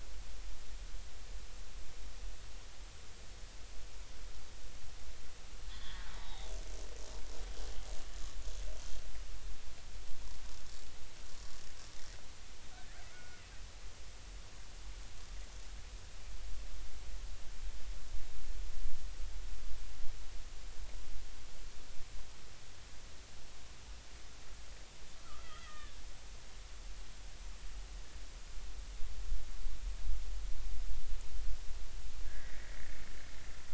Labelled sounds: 5.7	6.5	killer whale, Bigg's (transient), 0.80 to 4.0 kHz
13.1	13.4	killer whale, Bigg's (transient), 1.3 to 1.5 kHz
25.2	26.0	killer whale, Bigg's (transient), 1.1 to 3.5 kHz
32.2	32.8	killer whale, Bigg's (transient), 1.5 to 2.3 kHz

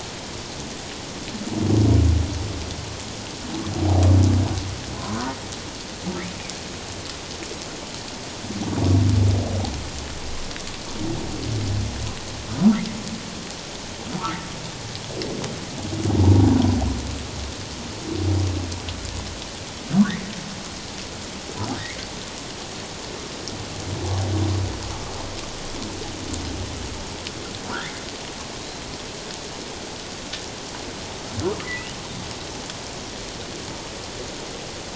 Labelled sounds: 27.7	28.0	humpback whale, 1.3 to 2.3 kHz
31.6	31.9	humpback whale, 1.9 to 2.1 kHz

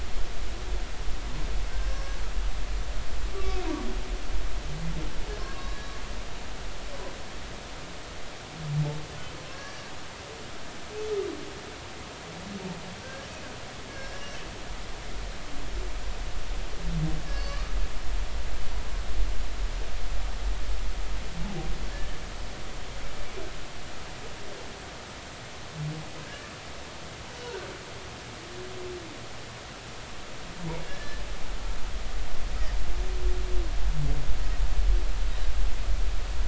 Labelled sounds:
1.7	2.2	humpback whale, 1.5 to 6.1 kHz
3.3	3.6	humpback whale, 1.1 to 1.2 kHz
5.4	6.0	humpback whale, 1.0 to 4.0 kHz
9.5	9.8	humpback whale, 1.6 to 5.9 kHz
13.0	13.3	humpback whale, 1.5 to 1.7 kHz
13.9	14.4	humpback whale, 1.6 to 5.7 kHz
17.3	17.8	humpback whale, 1.1 to 5.2 kHz
21.9	22.2	humpback whale, 1.6 to 1.9 kHz
26.2	26.5	humpback whale, 1.5 to 1.8 kHz
27.4	27.7	humpback whale, 1.4 to 1.6 kHz
30.9	31.2	humpback whale, 1.6 to 1.8 kHz

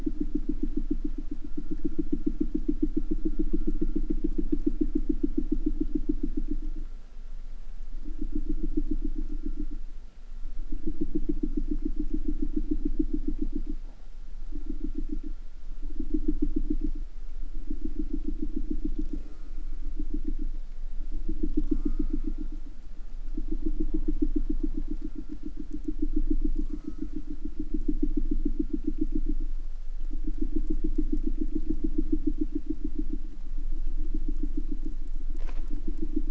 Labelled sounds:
19.0	19.8	killer whale, southern resident, J pod, call S04, 0.46 to 8.0 kHz
21.6	22.6	killer whale, southern resident, J pod, call S04, 0.65 to 8.0 kHz
26.4	27.3	killer whale, southern resident, J pod, call S04, 0.72 to 8.0 kHz

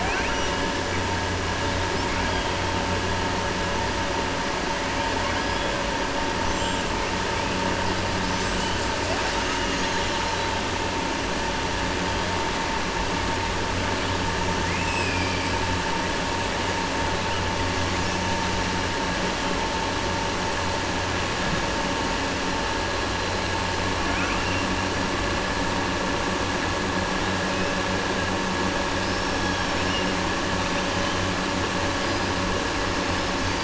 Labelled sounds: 14.6	15.4	killer whale, southern resident, 1.9 to 3.2 kHz
28.9	30.0	killer whale, southern resident, 4.4 to 6.4 kHz

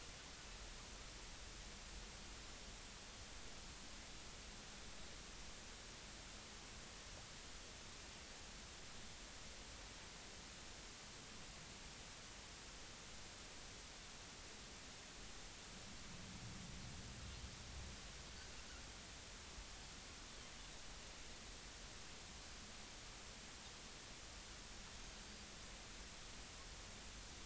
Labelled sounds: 25.2	25.5	Pacific white-sided dolphin, 4.6 to 4.8 kHz

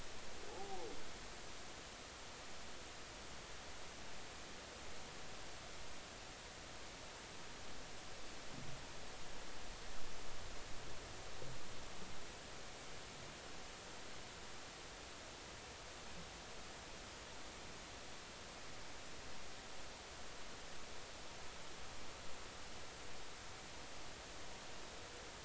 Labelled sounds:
0.5	0.8	humpback whale, 0.80 to 0.90 kHz

